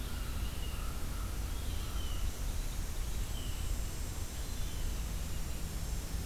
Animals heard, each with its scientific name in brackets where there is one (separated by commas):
Blue Jay (Cyanocitta cristata), American Crow (Corvus brachyrhynchos)